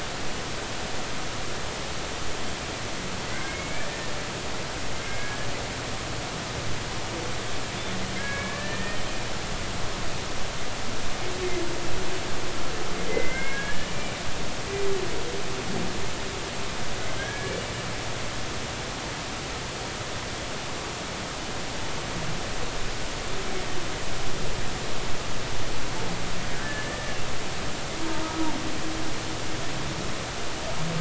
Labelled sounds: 3.5	4.1	humpback whale, 1.7 to 2.4 kHz
5.0	5.5	humpback whale, 1.6 to 2.2 kHz
8.2	9.0	humpback whale, 1.6 to 2.4 kHz
13.1	14.2	humpback whale, 1.5 to 2.4 kHz
17.0	17.6	humpback whale, 1.5 to 2.4 kHz
26.6	27.2	humpback whale, 1.7 to 1.9 kHz

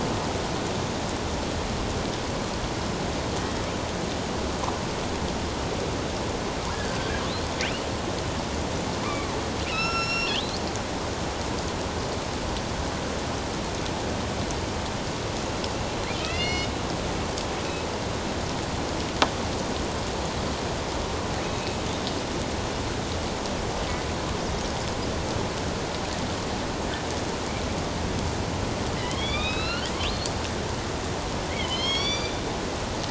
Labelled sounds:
6.7	7.3	killer whale, northern resident, A clan, AB subclan, 1.5 to 3.3 kHz
9.0	10.6	killer whale, northern resident, A clan, AB subclan, 0.97 to 8.0 kHz
16.2	16.7	killer whale, northern resident, A clan, AB subclan, 1.8 to 5.3 kHz
21.4	21.8	killer whale, northern resident, A clan, AB subclan, 2.5 to 2.7 kHz
29.0	29.9	killer whale, northern resident, A clan, AB subclan, 1.2 to 4.8 kHz
31.5	32.4	killer whale, northern resident, A clan, AB subclan, 2.0 to 6.7 kHz

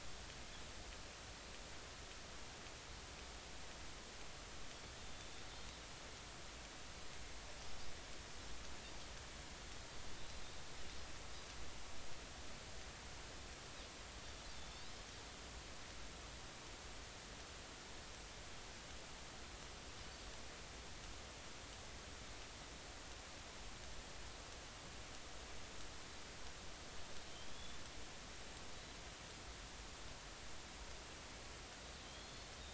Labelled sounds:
5.0	5.3	Pacific white-sided dolphin, 3.4 to 3.7 kHz
10.2	10.4	Pacific white-sided dolphin, 3.7 to 4.1 kHz
14.5	14.9	Pacific white-sided dolphin, 3.5 to 4.2 kHz
27.3	27.8	Pacific white-sided dolphin, 3.1 to 3.6 kHz
32.0	32.5	Pacific white-sided dolphin, 3.1 to 4.4 kHz

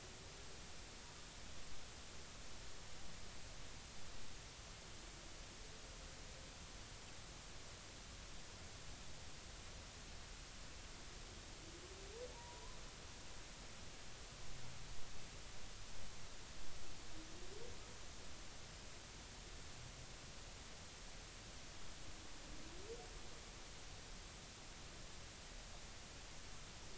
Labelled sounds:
12.3	12.8	humpback whale, 0.83 to 1.1 kHz

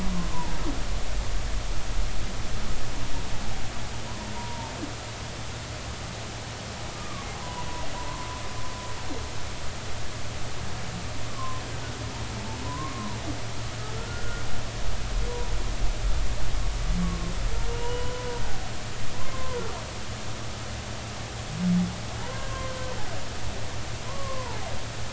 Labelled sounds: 4.3	4.7	humpback whale, 0.86 to 1.1 kHz
7.0	7.7	humpback whale, 0.93 to 1.2 kHz
11.3	11.6	humpback whale, 0.99 to 1.2 kHz
12.6	13.2	humpback whale, 0.83 to 1.2 kHz
14.0	14.4	humpback whale, 1.3 to 1.5 kHz
17.0	18.3	humpback whale, 0.90 to 3.0 kHz
19.3	19.6	humpback whale, 0.90 to 1.1 kHz
22.2	22.9	humpback whale, 0.86 to 3.1 kHz
24.0	24.6	humpback whale, 0.83 to 1.2 kHz

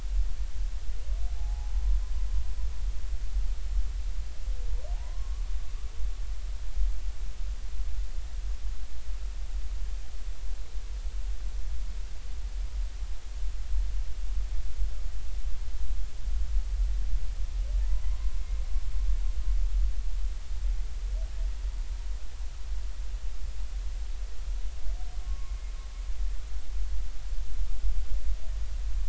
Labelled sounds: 1.3	1.7	humpback whale, 0.80 to 0.96 kHz
4.9	5.5	humpback whale, 0.80 to 1.2 kHz
18.1	18.4	humpback whale, 0.96 to 1.1 kHz
25.2	25.6	humpback whale, 0.99 to 1.2 kHz

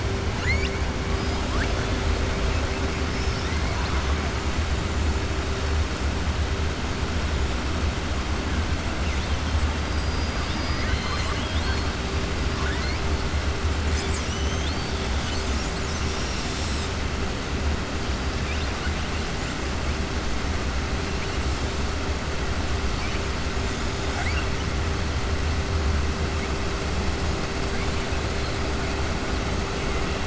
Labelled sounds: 9.9	11.9	killer whale, southern resident, 1.0 to 7.7 kHz
12.5	13.0	killer whale, southern resident, 0.98 to 4.6 kHz
24.0	24.5	killer whale, southern resident, 0.71 to 5.6 kHz

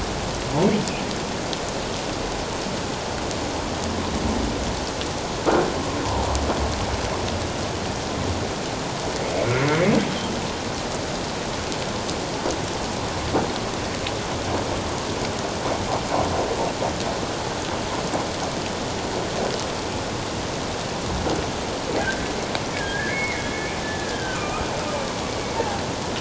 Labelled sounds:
9.4	9.6	humpback whale, 2.1 to 2.3 kHz
22.0	23.4	humpback whale, 1.5 to 2.3 kHz
23.8	24.7	humpback whale, 1.2 to 3.2 kHz
25.2	25.8	humpback whale, 0.78 to 2.3 kHz

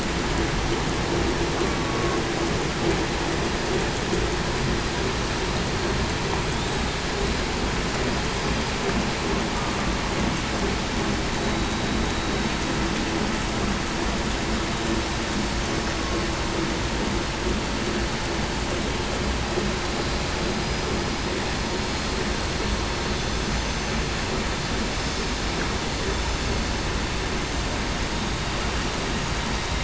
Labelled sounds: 1.8	2.2	killer whale, southern resident, 1.08 to 1.12 kHz
11.3	11.7	vessel noise, 3.8 to 3.9 kHz
23.6	24.1	vessel noise, 6.1 to 6.2 kHz

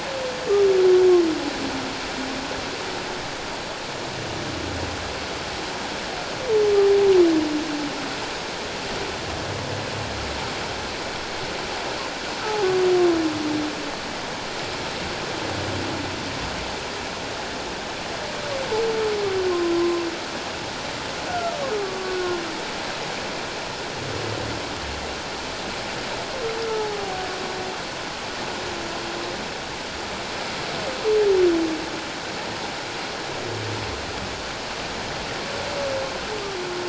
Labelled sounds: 12.4	12.7	humpback whale, 0.78 to 0.91 kHz
19.7	20.0	humpback whale, 0.94 to 1.1 kHz
21.3	22.4	humpback whale, 1.1 to 1.6 kHz
26.7	27.0	humpback whale, 0.81 to 0.91 kHz

